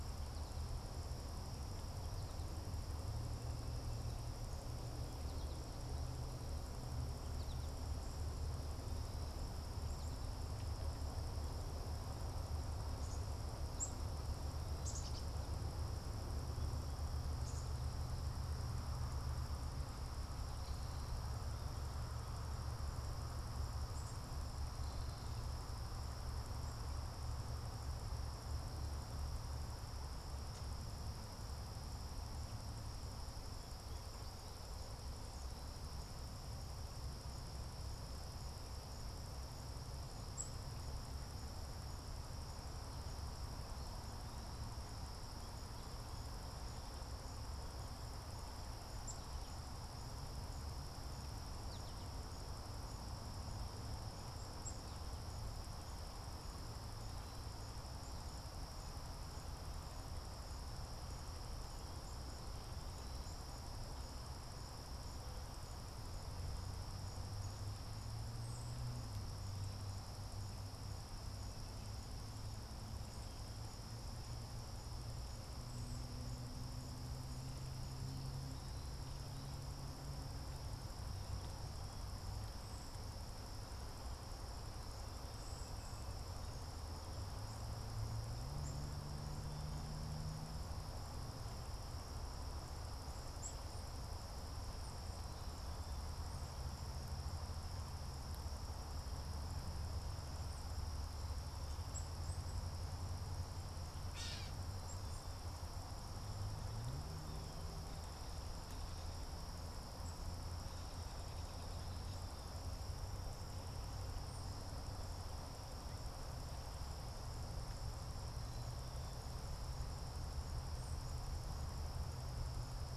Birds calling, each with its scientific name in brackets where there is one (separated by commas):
American Goldfinch (Spinus tristis), Gray Catbird (Dumetella carolinensis), Black-capped Chickadee (Poecile atricapillus), Cedar Waxwing (Bombycilla cedrorum)